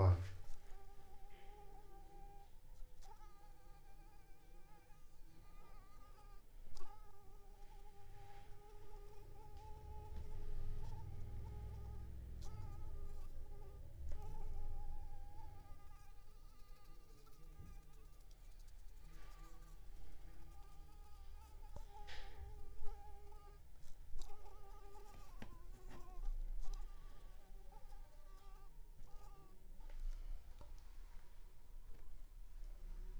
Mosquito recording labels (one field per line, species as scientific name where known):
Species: Anopheles arabiensis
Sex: female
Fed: unfed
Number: one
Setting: cup